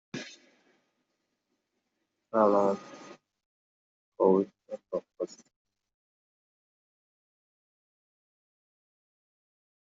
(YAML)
expert_labels:
- quality: no cough present
  cough_type: unknown
  dyspnea: false
  wheezing: false
  stridor: false
  choking: false
  congestion: false
  nothing: false
  diagnosis: healthy cough
  severity: unknown